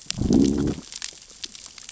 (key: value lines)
label: biophony, growl
recorder: SoundTrap 600 or HydroMoth